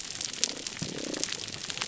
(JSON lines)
{"label": "biophony, damselfish", "recorder": "SoundTrap 300"}